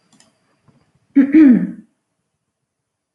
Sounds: Throat clearing